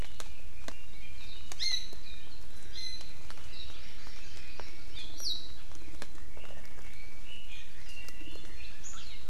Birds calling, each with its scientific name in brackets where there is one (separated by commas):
Iiwi (Drepanis coccinea), Hawaii Amakihi (Chlorodrepanis virens), Chinese Hwamei (Garrulax canorus)